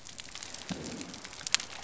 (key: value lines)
label: biophony
recorder: SoundTrap 300